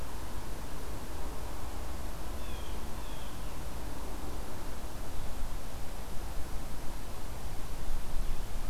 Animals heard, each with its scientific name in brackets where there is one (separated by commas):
Blue Jay (Cyanocitta cristata)